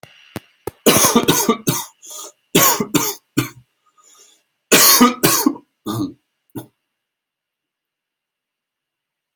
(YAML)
expert_labels:
- quality: good
  cough_type: dry
  dyspnea: false
  wheezing: false
  stridor: false
  choking: false
  congestion: true
  nothing: false
  diagnosis: upper respiratory tract infection
  severity: mild
age: 41
gender: male
respiratory_condition: false
fever_muscle_pain: false
status: healthy